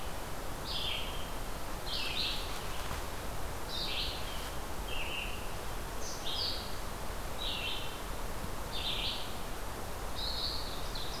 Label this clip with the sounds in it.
Red-eyed Vireo, Ovenbird